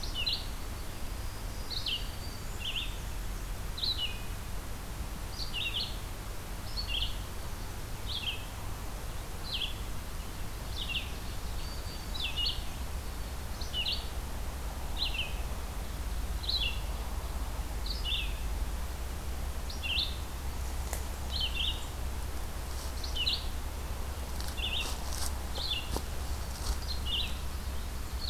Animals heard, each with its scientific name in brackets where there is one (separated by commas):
Red-eyed Vireo (Vireo olivaceus), Ovenbird (Seiurus aurocapilla), Black-and-white Warbler (Mniotilta varia), Black-throated Green Warbler (Setophaga virens)